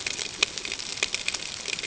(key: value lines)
label: ambient
recorder: HydroMoth